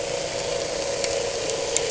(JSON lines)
{"label": "anthrophony, boat engine", "recorder": "HydroMoth"}